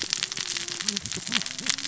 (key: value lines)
label: biophony, cascading saw
recorder: SoundTrap 600 or HydroMoth